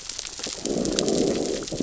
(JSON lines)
{"label": "biophony, growl", "recorder": "SoundTrap 600 or HydroMoth"}